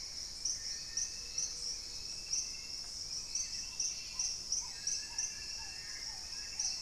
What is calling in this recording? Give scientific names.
Trogon melanurus, Pachysylvia hypoxantha, Turdus hauxwelli, Crypturellus soui, Leptotila rufaxilla, Querula purpurata, Piprites chloris